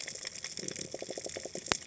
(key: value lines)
label: biophony
recorder: HydroMoth